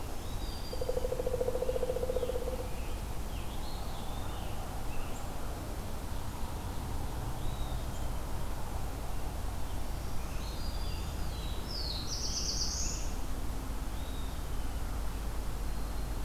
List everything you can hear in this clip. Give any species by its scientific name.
Setophaga virens, Dryocopus pileatus, Piranga olivacea, Contopus virens, Setophaga caerulescens